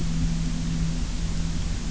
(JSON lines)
{"label": "anthrophony, boat engine", "recorder": "SoundTrap 300"}